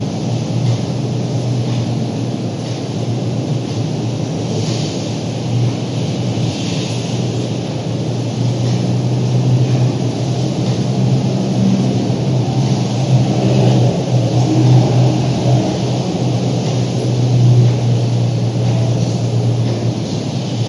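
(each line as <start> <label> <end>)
0.0 Continuous rain falls steadily in the background. 20.7
0.0 Continuous, repetitive clock ticking in a steady pattern. 20.7
5.5 An airplane approaches and then recedes. 20.7
6.8 Dripping sounds are heard. 8.1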